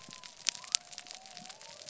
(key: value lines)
label: biophony
recorder: SoundTrap 300